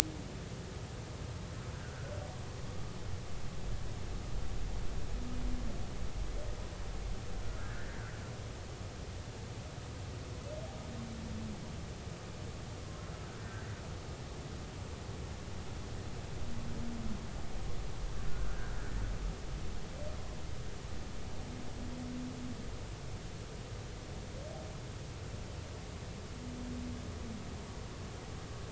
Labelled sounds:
1.7	2.1	humpback whale, 1.3 to 1.6 kHz
7.4	7.8	humpback whale, 1.2 to 1.8 kHz
12.8	13.7	humpback whale, 0.99 to 1.8 kHz
18.4	18.8	humpback whale, 1.4 to 1.7 kHz

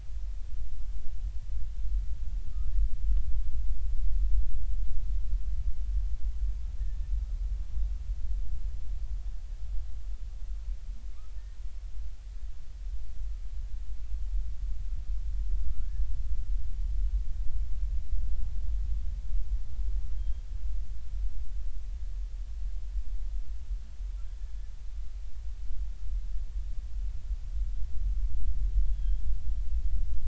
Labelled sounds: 15.6	15.9	humpback whale, 1.2 to 1.5 kHz
20.2	20.4	humpback whale, 3.1 to 3.3 kHz
28.9	29.3	humpback whale, 3.1 to 3.5 kHz

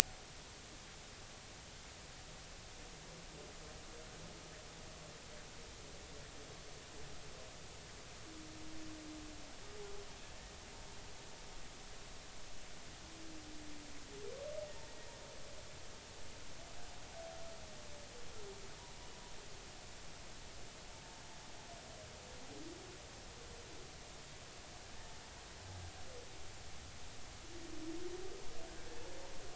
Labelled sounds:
10.2	10.5	humpback whale, 1.7 to 1.9 kHz

